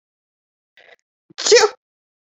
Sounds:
Sneeze